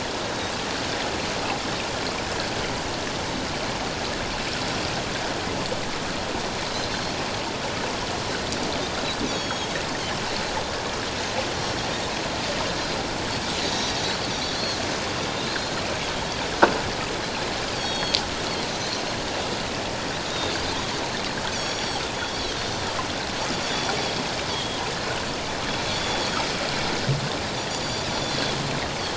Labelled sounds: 9.3	9.7	Pacific white-sided dolphin, 3.2 to 7.0 kHz
13.6	14.8	Pacific white-sided dolphin, 3.3 to 8.0 kHz
15.2	15.8	Pacific white-sided dolphin, 3.5 to 4.2 kHz
17.7	18.2	Pacific white-sided dolphin, 3.2 to 7.8 kHz
20.3	20.5	Pacific white-sided dolphin, 3.5 to 3.8 kHz
21.5	22.0	Pacific white-sided dolphin, 3.3 to 8.0 kHz
23.6	24.8	Pacific white-sided dolphin, 3.0 to 3.7 kHz
25.9	26.3	Pacific white-sided dolphin, 3.3 to 3.5 kHz
27.7	28.1	Pacific white-sided dolphin, 6.8 to 7.0 kHz

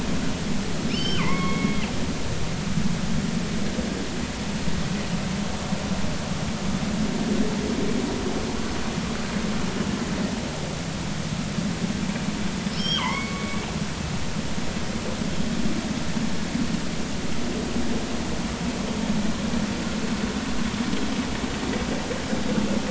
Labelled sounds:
0.9	1.9	killer whale, northern resident, G clan, call N23i, 0.86 to 5.5 kHz
12.7	13.7	killer whale, northern resident, G clan, call N23i, 0.83 to 5.6 kHz

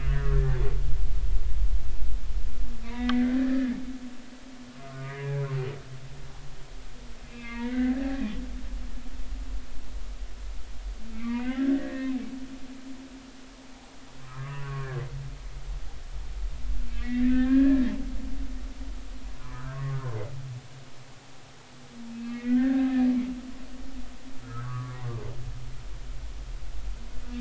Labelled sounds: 0.0	0.4	humpback whale, 1.5 to 1.9 kHz
0.8	1.2	humpback whale, 1.2 to 1.5 kHz
2.8	3.7	humpback whale, 1.5 to 2.8 kHz
5.0	5.4	humpback whale, 0.93 to 2.1 kHz
5.8	6.2	humpback whale, 1.2 to 1.3 kHz
7.2	8.1	humpback whale, 1.1 to 3.9 kHz
11.1	12.2	humpback whale, 0.99 to 3.0 kHz
14.2	15.0	humpback whale, 0.99 to 2.5 kHz
16.9	17.8	humpback whale, 1.2 to 2.3 kHz
19.3	20.0	humpback whale, 0.96 to 1.6 kHz
22.1	22.9	humpback whale, 1.1 to 2.7 kHz
24.4	25.2	humpback whale, 0.96 to 1.6 kHz

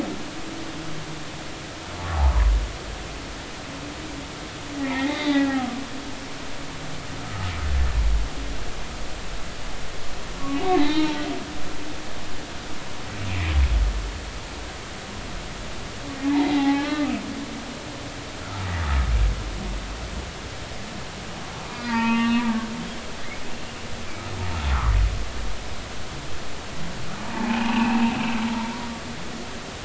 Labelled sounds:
2.1	2.5	humpback whale, 0.80 to 1.2 kHz
4.8	5.8	humpback whale, 0.80 to 4.0 kHz
10.8	11.2	humpback whale, 0.83 to 4.2 kHz
13.3	13.5	humpback whale, 2.2 to 2.8 kHz
16.2	17.2	humpback whale, 0.80 to 2.8 kHz
18.4	18.7	humpback whale, 1.2 to 1.5 kHz
21.6	22.8	humpback whale, 0.86 to 3.8 kHz
24.7	24.9	humpback whale, 0.96 to 1.5 kHz
27.2	28.1	humpback whale, 0.80 to 2.9 kHz

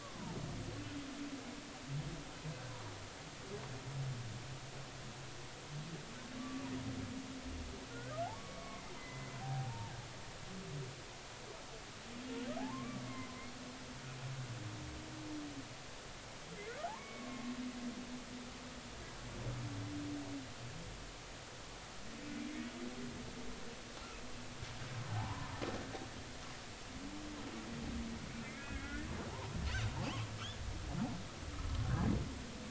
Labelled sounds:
0.0	0.3	humpback whale, 0.83 to 1.2 kHz
6.4	6.6	humpback whale, 1.1 to 1.2 kHz
7.9	9.9	humpback whale, 0.80 to 2.3 kHz
12.6	13.0	humpback whale, 0.80 to 1.2 kHz
16.8	17.5	humpback whale, 0.80 to 2.3 kHz
25.1	25.6	humpback whale, 0.80 to 1.1 kHz
28.6	29.1	humpback whale, 1.6 to 1.9 kHz
31.8	32.1	humpback whale, 1.4 to 1.8 kHz

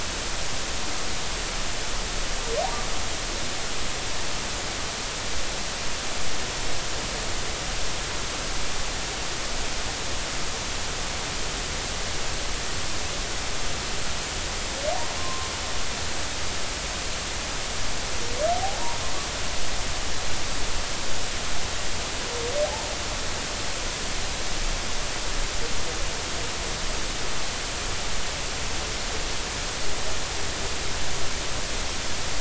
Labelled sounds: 15.2	15.5	humpback whale, 0.99 to 1.1 kHz
18.5	18.8	humpback whale, 0.80 to 0.86 kHz
22.6	22.9	humpback whale, 0.80 to 0.96 kHz

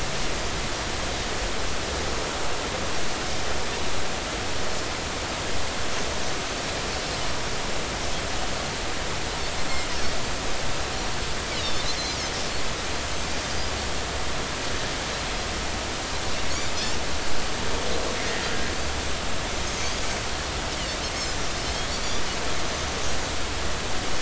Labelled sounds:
11.6	11.9	Pacific white-sided dolphin, 3.4 to 3.9 kHz
21.9	22.2	Pacific white-sided dolphin, 5.6 to 5.9 kHz

